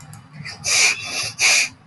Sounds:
Sniff